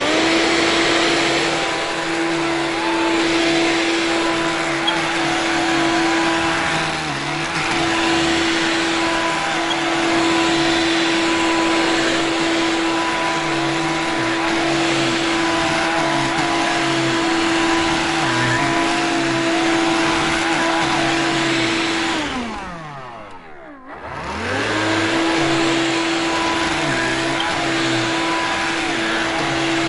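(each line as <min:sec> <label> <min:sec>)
0:00.0 A vacuum cleaner is running loudly and continuously indoors. 0:22.6
0:22.7 A vacuum cleaner stops running indoors. 0:24.2
0:24.2 A vacuum cleaner is running loudly indoors. 0:29.9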